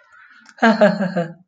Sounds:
Laughter